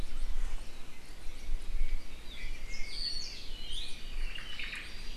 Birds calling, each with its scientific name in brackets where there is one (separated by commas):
Apapane (Himatione sanguinea), Hawaii Creeper (Loxops mana), Omao (Myadestes obscurus)